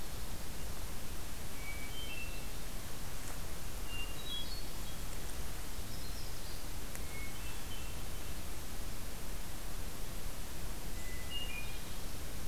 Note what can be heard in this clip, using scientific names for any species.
Catharus guttatus, Setophaga coronata